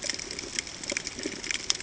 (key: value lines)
label: ambient
recorder: HydroMoth